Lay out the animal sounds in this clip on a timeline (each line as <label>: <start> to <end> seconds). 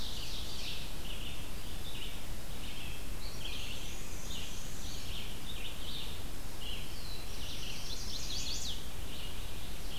Ovenbird (Seiurus aurocapilla): 0.0 to 1.0 seconds
Red-eyed Vireo (Vireo olivaceus): 0.0 to 10.0 seconds
Black-and-white Warbler (Mniotilta varia): 3.6 to 5.2 seconds
Black-throated Blue Warbler (Setophaga caerulescens): 6.6 to 8.1 seconds
Chestnut-sided Warbler (Setophaga pensylvanica): 7.5 to 8.9 seconds